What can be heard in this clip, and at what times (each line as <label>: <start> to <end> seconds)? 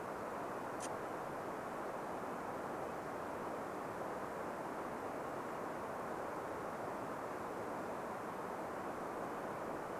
Red-breasted Nuthatch song: 0 to 10 seconds